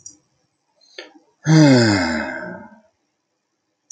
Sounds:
Sigh